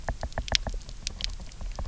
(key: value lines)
label: biophony, knock
recorder: SoundTrap 300